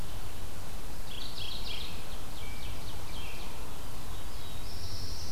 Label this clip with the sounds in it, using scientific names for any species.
Geothlypis philadelphia, Seiurus aurocapilla, Turdus migratorius, Setophaga caerulescens